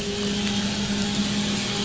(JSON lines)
{"label": "anthrophony, boat engine", "recorder": "SoundTrap 500"}